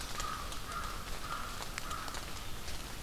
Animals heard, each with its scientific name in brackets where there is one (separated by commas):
American Crow (Corvus brachyrhynchos)